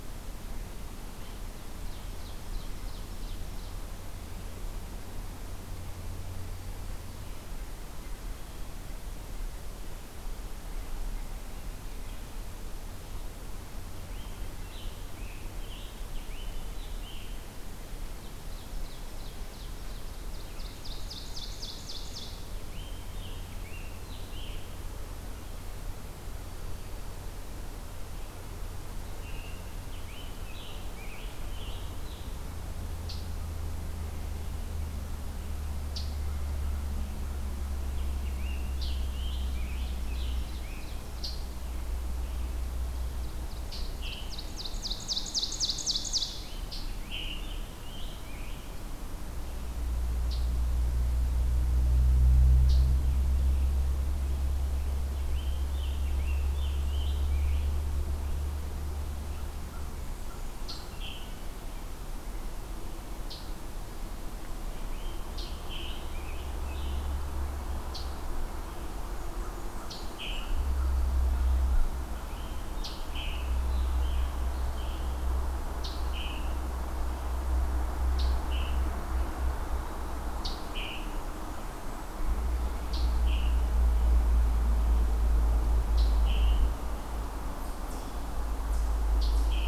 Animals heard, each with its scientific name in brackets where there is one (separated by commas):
Blackburnian Warbler (Setophaga fusca), Eastern Chipmunk (Tamias striatus), Scarlet Tanager (Piranga olivacea), Ovenbird (Seiurus aurocapilla)